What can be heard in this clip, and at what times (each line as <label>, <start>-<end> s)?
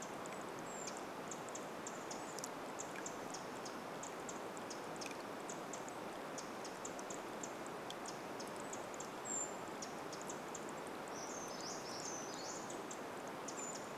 Brown Creeper call, 0-2 s
Pacific Wren call, 0-14 s
Brown Creeper call, 8-10 s
Brown Creeper song, 10-14 s
Brown Creeper call, 12-14 s